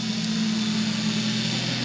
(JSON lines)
{"label": "anthrophony, boat engine", "recorder": "SoundTrap 500"}